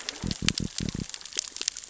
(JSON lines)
{"label": "biophony", "recorder": "SoundTrap 600 or HydroMoth"}